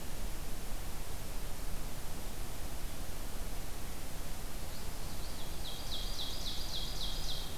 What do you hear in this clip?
Common Yellowthroat, Ovenbird